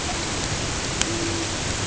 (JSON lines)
{"label": "ambient", "recorder": "HydroMoth"}